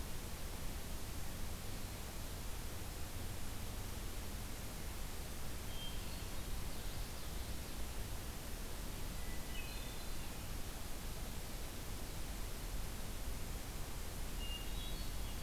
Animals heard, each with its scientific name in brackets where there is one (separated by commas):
Common Yellowthroat (Geothlypis trichas), Hermit Thrush (Catharus guttatus)